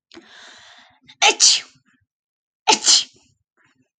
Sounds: Sneeze